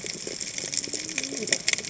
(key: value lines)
label: biophony, cascading saw
recorder: HydroMoth